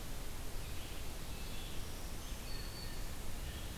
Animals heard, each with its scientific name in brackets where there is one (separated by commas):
Black-throated Green Warbler (Setophaga virens), Red-eyed Vireo (Vireo olivaceus), Tufted Titmouse (Baeolophus bicolor)